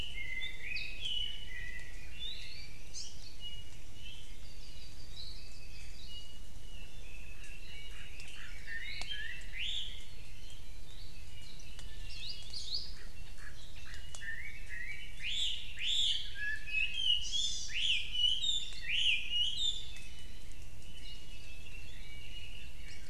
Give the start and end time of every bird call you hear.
[0.00, 2.87] Chinese Hwamei (Garrulax canorus)
[2.87, 3.17] Hawaii Amakihi (Chlorodrepanis virens)
[3.87, 4.37] Iiwi (Drepanis coccinea)
[4.37, 6.47] Apapane (Himatione sanguinea)
[7.87, 20.07] Chinese Hwamei (Garrulax canorus)
[8.77, 9.27] Apapane (Himatione sanguinea)
[10.87, 11.17] Iiwi (Drepanis coccinea)
[11.47, 11.87] Warbling White-eye (Zosterops japonicus)
[12.07, 12.97] Hawaii Akepa (Loxops coccineus)
[17.17, 17.77] Hawaii Amakihi (Chlorodrepanis virens)

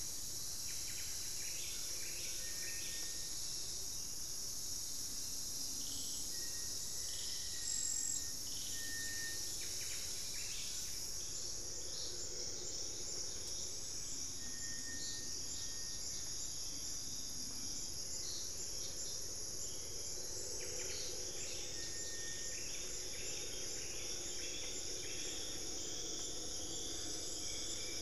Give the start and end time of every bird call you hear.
[0.00, 11.43] Buff-breasted Wren (Cantorchilus leucotis)
[6.23, 8.73] Black-faced Antthrush (Formicarius analis)
[11.43, 28.01] Hauxwell's Thrush (Turdus hauxwelli)
[20.33, 26.03] Buff-breasted Wren (Cantorchilus leucotis)

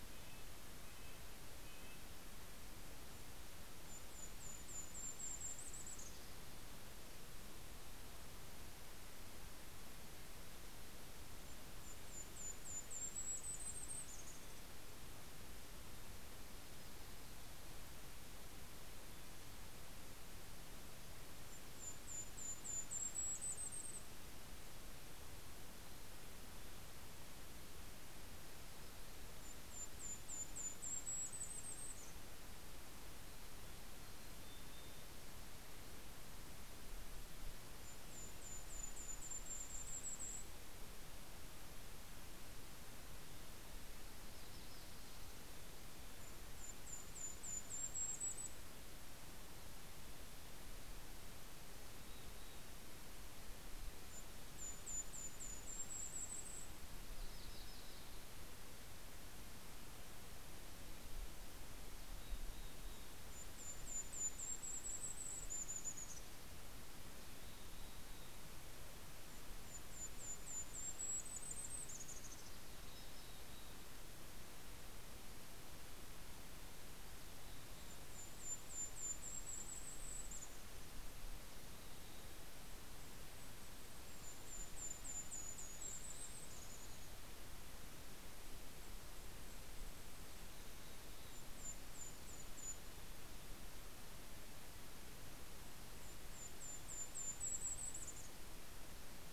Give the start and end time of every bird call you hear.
[0.00, 2.73] Mountain Chickadee (Poecile gambeli)
[0.00, 3.23] Red-breasted Nuthatch (Sitta canadensis)
[2.73, 7.83] Golden-crowned Kinglet (Regulus satrapa)
[11.13, 16.03] Golden-crowned Kinglet (Regulus satrapa)
[13.23, 15.83] Mountain Chickadee (Poecile gambeli)
[18.43, 23.73] Mountain Chickadee (Poecile gambeli)
[19.63, 25.03] Golden-crowned Kinglet (Regulus satrapa)
[25.03, 28.13] Mountain Chickadee (Poecile gambeli)
[28.53, 33.33] Golden-crowned Kinglet (Regulus satrapa)
[32.73, 36.03] Mountain Chickadee (Poecile gambeli)
[37.03, 40.83] Golden-crowned Kinglet (Regulus satrapa)
[43.33, 46.13] Yellow-rumped Warbler (Setophaga coronata)
[45.73, 49.53] Golden-crowned Kinglet (Regulus satrapa)
[49.33, 55.03] Mountain Chickadee (Poecile gambeli)
[53.03, 57.13] Golden-crowned Kinglet (Regulus satrapa)
[56.93, 58.73] Yellow-rumped Warbler (Setophaga coronata)
[61.63, 66.93] Golden-crowned Kinglet (Regulus satrapa)
[61.73, 64.03] Mountain Chickadee (Poecile gambeli)
[66.93, 69.53] Mountain Chickadee (Poecile gambeli)
[68.53, 73.53] Golden-crowned Kinglet (Regulus satrapa)
[72.13, 75.03] Mountain Chickadee (Poecile gambeli)
[76.53, 78.93] Mountain Chickadee (Poecile gambeli)
[77.03, 81.33] Golden-crowned Kinglet (Regulus satrapa)
[81.13, 82.73] Mountain Chickadee (Poecile gambeli)
[82.53, 87.63] Golden-crowned Kinglet (Regulus satrapa)
[85.33, 87.63] Mountain Chickadee (Poecile gambeli)
[88.63, 93.53] Golden-crowned Kinglet (Regulus satrapa)
[89.63, 92.73] Mountain Chickadee (Poecile gambeli)
[95.13, 99.23] Golden-crowned Kinglet (Regulus satrapa)

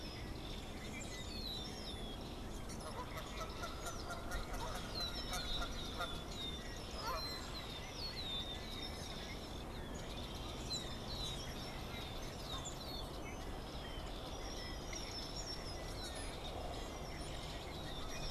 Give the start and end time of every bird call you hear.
[0.00, 18.30] unidentified bird

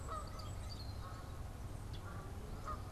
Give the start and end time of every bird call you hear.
[0.00, 1.07] Golden-crowned Kinglet (Regulus satrapa)
[0.00, 2.92] Canada Goose (Branta canadensis)
[0.00, 2.92] Rusty Blackbird (Euphagus carolinus)

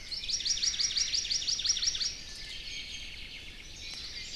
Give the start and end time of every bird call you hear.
[0.00, 2.20] Hawaii Amakihi (Chlorodrepanis virens)
[0.30, 1.30] Omao (Myadestes obscurus)
[1.60, 2.20] Omao (Myadestes obscurus)
[2.20, 3.20] Iiwi (Drepanis coccinea)

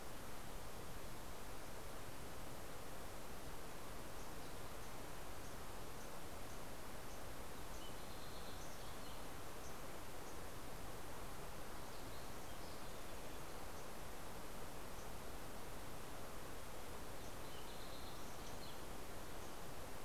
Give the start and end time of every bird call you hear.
[4.10, 12.10] MacGillivray's Warbler (Geothlypis tolmiei)
[7.00, 10.10] Fox Sparrow (Passerella iliaca)
[17.10, 20.00] Fox Sparrow (Passerella iliaca)

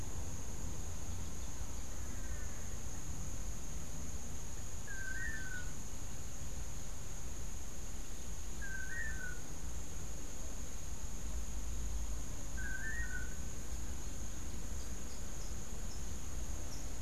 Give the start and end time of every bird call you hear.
[1.75, 3.05] Long-tailed Manakin (Chiroxiphia linearis)
[4.75, 5.95] Long-tailed Manakin (Chiroxiphia linearis)
[8.45, 9.55] Long-tailed Manakin (Chiroxiphia linearis)
[12.45, 13.55] Long-tailed Manakin (Chiroxiphia linearis)
[14.65, 16.95] Rufous-capped Warbler (Basileuterus rufifrons)

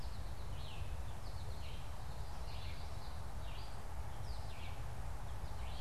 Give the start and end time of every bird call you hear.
[0.00, 1.97] American Goldfinch (Spinus tristis)
[0.00, 5.81] Red-eyed Vireo (Vireo olivaceus)
[2.07, 3.27] Common Yellowthroat (Geothlypis trichas)

